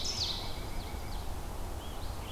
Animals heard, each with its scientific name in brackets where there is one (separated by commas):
Pileated Woodpecker (Dryocopus pileatus), Red-eyed Vireo (Vireo olivaceus), Ovenbird (Seiurus aurocapilla)